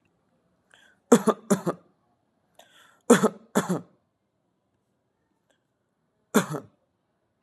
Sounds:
Cough